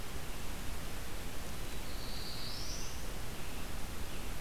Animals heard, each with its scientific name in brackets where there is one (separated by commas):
American Robin (Turdus migratorius), Black-throated Blue Warbler (Setophaga caerulescens)